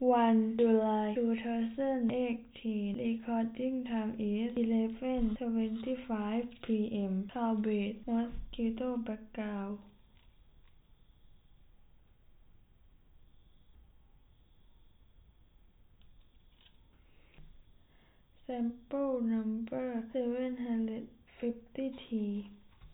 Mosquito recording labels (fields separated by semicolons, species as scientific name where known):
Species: no mosquito; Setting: cup